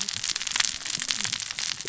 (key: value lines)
label: biophony, cascading saw
recorder: SoundTrap 600 or HydroMoth